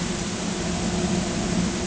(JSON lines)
{"label": "ambient", "recorder": "HydroMoth"}